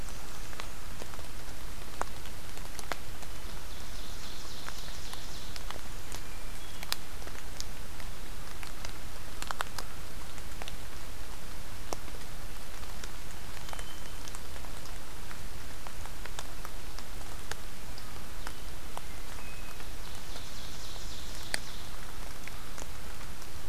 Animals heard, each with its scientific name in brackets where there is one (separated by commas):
Ovenbird (Seiurus aurocapilla), Hermit Thrush (Catharus guttatus)